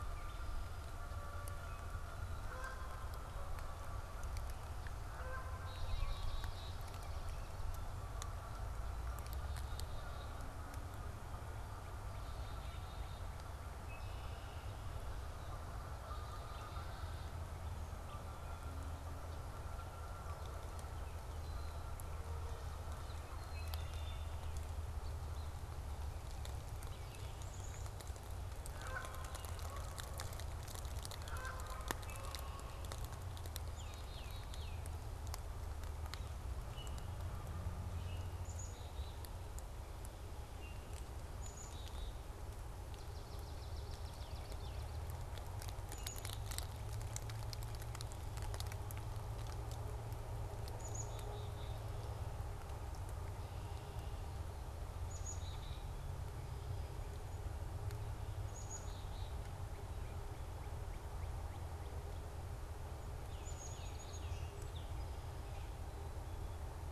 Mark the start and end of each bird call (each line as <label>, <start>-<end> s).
Canada Goose (Branta canadensis), 1.8-10.6 s
Black-capped Chickadee (Poecile atricapillus), 5.4-7.0 s
Black-capped Chickadee (Poecile atricapillus), 9.4-10.3 s
Black-capped Chickadee (Poecile atricapillus), 12.0-13.4 s
Red-winged Blackbird (Agelaius phoeniceus), 13.7-14.9 s
Canada Goose (Branta canadensis), 15.7-21.5 s
Black-capped Chickadee (Poecile atricapillus), 15.9-17.5 s
Red-winged Blackbird (Agelaius phoeniceus), 23.2-24.6 s
Black-capped Chickadee (Poecile atricapillus), 23.3-24.0 s
Canada Goose (Branta canadensis), 28.6-33.1 s
Red-winged Blackbird (Agelaius phoeniceus), 31.8-33.1 s
Black-capped Chickadee (Poecile atricapillus), 33.5-35.0 s
Tufted Titmouse (Baeolophus bicolor), 33.6-34.9 s
Black-capped Chickadee (Poecile atricapillus), 38.2-42.4 s
Swamp Sparrow (Melospiza georgiana), 42.7-45.0 s
Black-capped Chickadee (Poecile atricapillus), 45.7-46.8 s
Black-capped Chickadee (Poecile atricapillus), 50.5-52.0 s
Black-capped Chickadee (Poecile atricapillus), 54.9-56.1 s
Black-capped Chickadee (Poecile atricapillus), 58.3-59.6 s
Tufted Titmouse (Baeolophus bicolor), 63.1-64.9 s
Black-capped Chickadee (Poecile atricapillus), 63.2-64.5 s
Song Sparrow (Melospiza melodia), 63.6-66.0 s